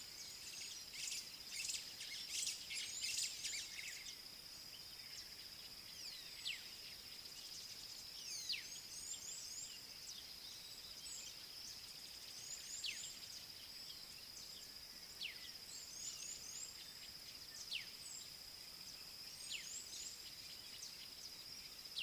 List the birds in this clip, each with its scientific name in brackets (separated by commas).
White-browed Sparrow-Weaver (Plocepasser mahali), Black-backed Puffback (Dryoscopus cubla)